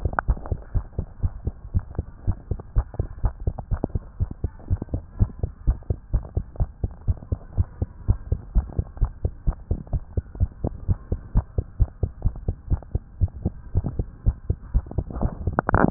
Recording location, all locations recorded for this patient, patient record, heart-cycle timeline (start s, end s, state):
tricuspid valve (TV)
aortic valve (AV)+pulmonary valve (PV)+tricuspid valve (TV)+mitral valve (MV)
#Age: Child
#Sex: Female
#Height: 113.0 cm
#Weight: 17.3 kg
#Pregnancy status: False
#Murmur: Absent
#Murmur locations: nan
#Most audible location: nan
#Systolic murmur timing: nan
#Systolic murmur shape: nan
#Systolic murmur grading: nan
#Systolic murmur pitch: nan
#Systolic murmur quality: nan
#Diastolic murmur timing: nan
#Diastolic murmur shape: nan
#Diastolic murmur grading: nan
#Diastolic murmur pitch: nan
#Diastolic murmur quality: nan
#Outcome: Normal
#Campaign: 2015 screening campaign
0.00	0.12	S2
0.12	0.24	diastole
0.24	0.38	S1
0.38	0.50	systole
0.50	0.60	S2
0.60	0.74	diastole
0.74	0.86	S1
0.86	0.94	systole
0.94	1.06	S2
1.06	1.22	diastole
1.22	1.32	S1
1.32	1.44	systole
1.44	1.54	S2
1.54	1.72	diastole
1.72	1.84	S1
1.84	1.96	systole
1.96	2.08	S2
2.08	2.26	diastole
2.26	2.38	S1
2.38	2.50	systole
2.50	2.60	S2
2.60	2.76	diastole
2.76	2.86	S1
2.86	2.96	systole
2.96	3.06	S2
3.06	3.22	diastole
3.22	3.34	S1
3.34	3.42	systole
3.42	3.54	S2
3.54	3.70	diastole
3.70	3.82	S1
3.82	3.94	systole
3.94	4.02	S2
4.02	4.20	diastole
4.20	4.30	S1
4.30	4.40	systole
4.40	4.52	S2
4.52	4.70	diastole
4.70	4.80	S1
4.80	4.92	systole
4.92	5.02	S2
5.02	5.18	diastole
5.18	5.30	S1
5.30	5.40	systole
5.40	5.50	S2
5.50	5.64	diastole
5.64	5.78	S1
5.78	5.86	systole
5.86	5.98	S2
5.98	6.12	diastole
6.12	6.22	S1
6.22	6.34	systole
6.34	6.44	S2
6.44	6.58	diastole
6.58	6.70	S1
6.70	6.82	systole
6.82	6.92	S2
6.92	7.06	diastole
7.06	7.18	S1
7.18	7.28	systole
7.28	7.40	S2
7.40	7.56	diastole
7.56	7.68	S1
7.68	7.80	systole
7.80	7.92	S2
7.92	8.08	diastole
8.08	8.20	S1
8.20	8.28	systole
8.28	8.40	S2
8.40	8.54	diastole
8.54	8.65	S1
8.65	8.76	systole
8.76	8.84	S2
8.84	9.00	diastole
9.00	9.12	S1
9.12	9.20	systole
9.20	9.32	S2
9.32	9.46	diastole
9.46	9.58	S1
9.58	9.70	systole
9.70	9.80	S2
9.80	9.92	diastole
9.92	10.02	S1
10.02	10.16	systole
10.16	10.24	S2
10.24	10.38	diastole
10.38	10.50	S1
10.50	10.62	systole
10.62	10.74	S2
10.74	10.88	diastole
10.88	10.98	S1
10.98	11.08	systole
11.08	11.20	S2
11.20	11.34	diastole
11.34	11.48	S1
11.48	11.54	systole
11.54	11.64	S2
11.64	11.78	diastole
11.78	11.92	S1
11.92	12.00	systole
12.00	12.12	S2
12.12	12.24	diastole
12.24	12.34	S1
12.34	12.46	systole
12.46	12.56	S2
12.56	12.70	diastole
12.70	12.82	S1
12.82	12.94	systole
12.94	13.04	S2
13.04	13.20	diastole
13.20	13.32	S1
13.32	13.44	systole
13.44	13.56	S2
13.56	13.74	diastole
13.74	13.85	S1
13.85	13.98	systole
13.98	14.08	S2
14.08	14.26	diastole
14.26	14.38	S1
14.38	14.46	systole
14.46	14.58	S2
14.58	14.72	diastole
14.72	14.86	S1
14.86	14.96	systole
14.96	15.06	S2
15.06	15.20	diastole